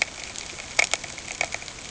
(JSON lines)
{"label": "ambient", "recorder": "HydroMoth"}